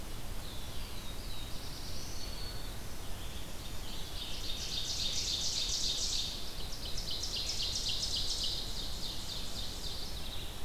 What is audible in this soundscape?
Red-eyed Vireo, Black-throated Blue Warbler, Black-throated Green Warbler, Ovenbird, Mourning Warbler